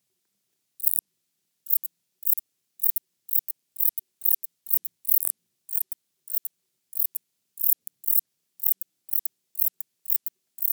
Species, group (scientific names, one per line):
Metrioptera buyssoni
Orthoptera